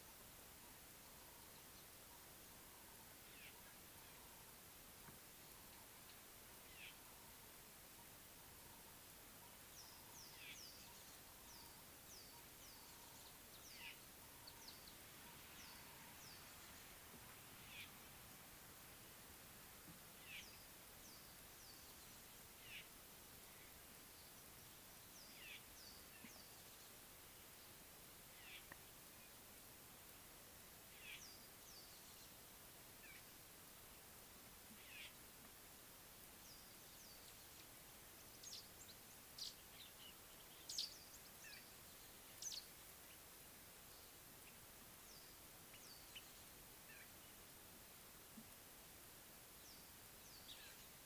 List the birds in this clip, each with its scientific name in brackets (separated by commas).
Golden-breasted Starling (Lamprotornis regius)